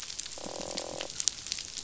{"label": "biophony, croak", "recorder": "SoundTrap 500"}
{"label": "biophony", "recorder": "SoundTrap 500"}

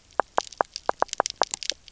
{"label": "biophony, knock croak", "recorder": "SoundTrap 300"}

